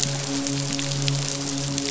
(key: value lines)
label: biophony, midshipman
recorder: SoundTrap 500